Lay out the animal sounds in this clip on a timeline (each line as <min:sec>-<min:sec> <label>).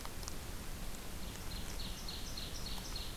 0:01.2-0:03.2 Ovenbird (Seiurus aurocapilla)